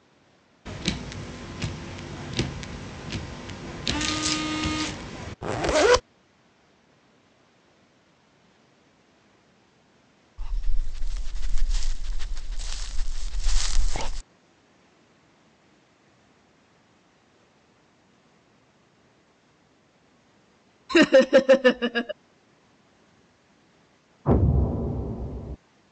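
At 0.65 seconds, you can hear a car. Then, at 5.41 seconds, the sound of a zipper comes through. Next, at 10.38 seconds, a dog can be heard. Afterwards, at 20.89 seconds, someone laughs. Finally, at 24.24 seconds, an explosion is heard. A faint, constant background noise persists.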